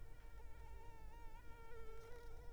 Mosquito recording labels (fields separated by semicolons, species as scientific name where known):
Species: Anopheles arabiensis; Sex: female; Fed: unfed; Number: one; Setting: cup